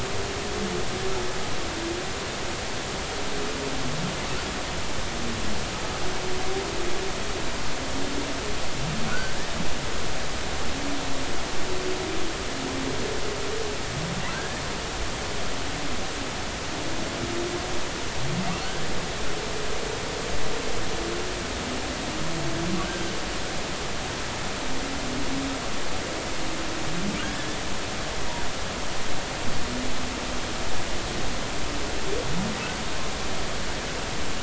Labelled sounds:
9.1	9.4	humpback whale, 1.3 to 1.6 kHz
14.3	14.6	humpback whale, 1.5 to 1.9 kHz
27.2	27.6	humpback whale, 1.4 to 3.6 kHz

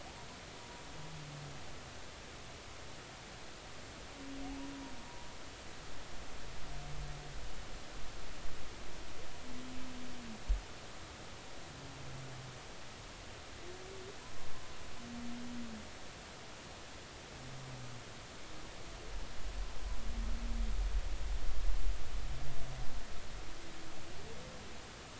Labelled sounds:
0.6	0.8	humpback whale, 0.93 to 0.99 kHz

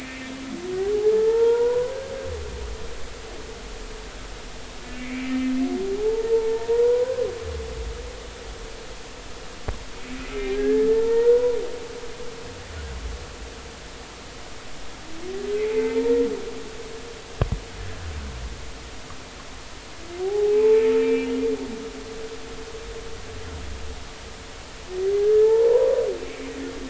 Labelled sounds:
1.2	1.9	humpback whale, 1.3 to 1.5 kHz
5.0	7.2	humpback whale, 0.80 to 2.4 kHz
10.3	11.6	humpback whale, 0.83 to 2.4 kHz
15.5	16.1	humpback whale, 0.83 to 2.6 kHz
20.2	21.3	humpback whale, 0.80 to 2.7 kHz
25.2	26.0	humpback whale, 0.83 to 1.8 kHz
26.2	26.5	humpback whale, 2.1 to 2.4 kHz

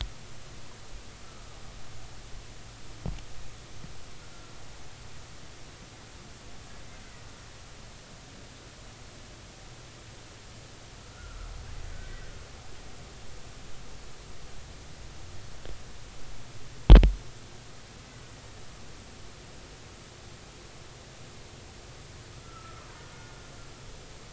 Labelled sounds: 1.2	1.6	killer whale, Bigg's (transient), 1.2 to 1.4 kHz
11.0	11.5	killer whale, Bigg's (transient), 1.2 to 1.5 kHz
22.4	23.4	killer whale, Bigg's (transient), 1.2 to 1.5 kHz

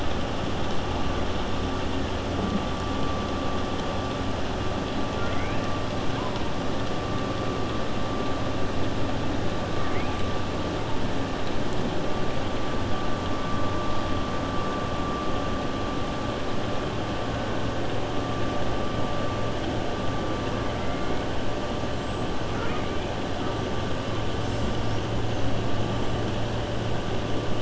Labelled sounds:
5.1	5.6	killer whale, 0.69 to 2.7 kHz

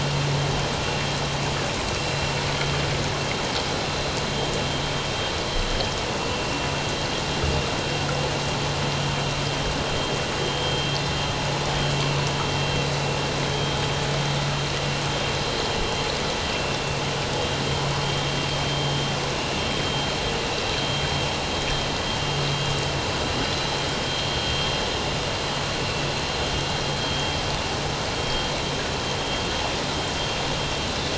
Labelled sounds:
18.7	19.0	vessel noise, 3.0 to 3.2 kHz
27.0	27.3	vessel noise, 3.2 to 3.3 kHz

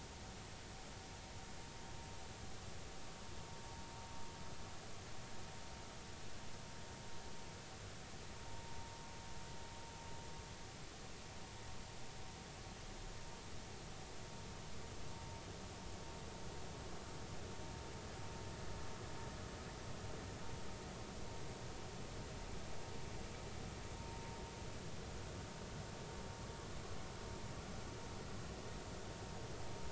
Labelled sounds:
8.5	8.9	vessel noise, 0.90 to 1.1 kHz
24.0	24.2	vessel noise, 0.90 to 0.96 kHz

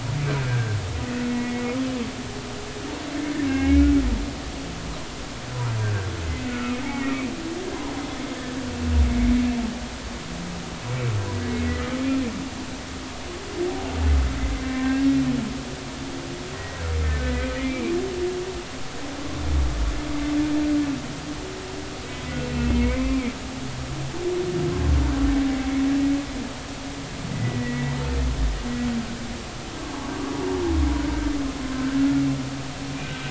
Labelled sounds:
0.5	0.8	humpback whale, 1.5 to 1.7 kHz
1.3	1.7	humpback whale, 1.9 to 2.2 kHz
3.5	3.9	humpback whale, 1.5 to 2.8 kHz
5.8	6.1	humpback whale, 1.4 to 1.7 kHz
6.8	7.2	humpback whale, 1.8 to 2.3 kHz
10.1	10.4	humpback whale, 2.1 to 2.3 kHz
14.7	15.1	humpback whale, 1.5 to 1.9 kHz
16.5	17.9	humpback whale, 1.5 to 2.5 kHz
22.4	23.3	humpback whale, 0.93 to 2.7 kHz
27.3	28.0	humpback whale, 1.9 to 2.0 kHz
31.7	32.0	humpback whale, 1.5 to 1.7 kHz
33.0	33.2	humpback whale, 1.5 to 1.6 kHz

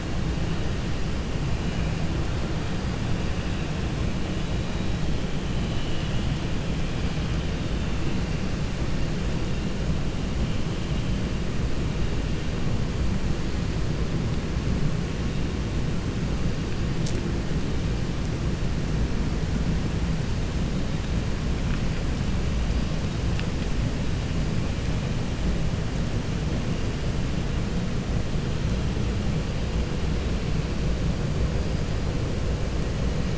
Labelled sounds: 5.6	6.2	vessel noise, 2.7 to 4.1 kHz

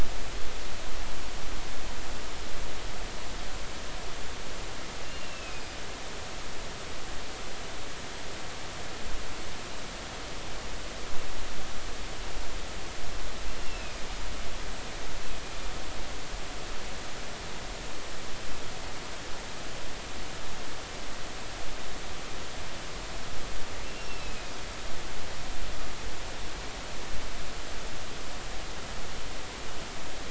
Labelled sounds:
5.0	5.6	killer whale, northern resident, A clan, AA subclan, A05 pod, call N04, 2.4 to 2.8 kHz
13.6	14.0	killer whale, northern resident, A clan, AA subclan, A05 pod, call N04, 2.4 to 2.8 kHz
23.8	24.5	killer whale, northern resident, A clan, AA subclan, A05 pod, call N04, 2.4 to 5.5 kHz

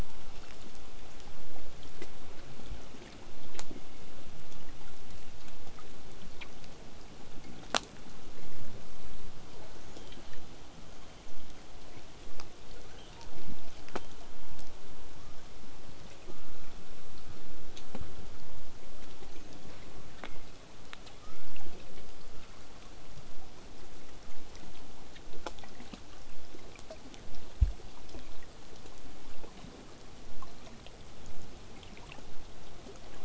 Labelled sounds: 12.8	13.6	killer whale, southern resident, L pod, call S02iii, 0.15 to 6.6 kHz
18.9	19.6	killer whale, southern resident, 0.39 to 6.6 kHz
21.2	21.9	killer whale, southern resident, 0.27 to 1.7 kHz
28.3	33.2	vessel noise, 0 to 8.0 kHz

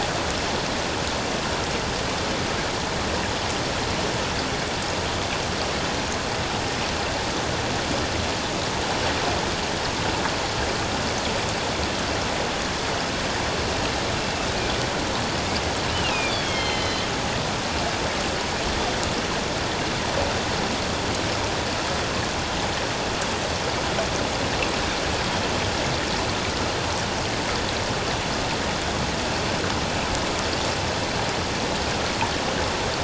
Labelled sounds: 15.9	17.1	killer whale, northern resident, A clan, AA subclan, A04 pod, call N04, 2.0 to 4.3 kHz

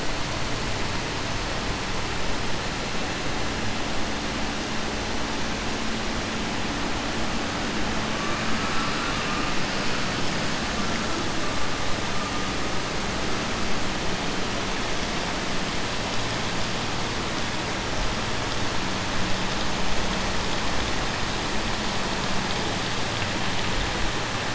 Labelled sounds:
8.5	9.5	vessel noise, 1.1 to 3.4 kHz

